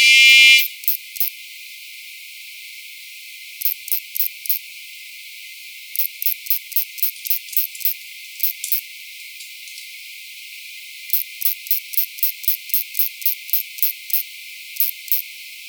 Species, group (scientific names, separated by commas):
Poecilimon propinquus, Orthoptera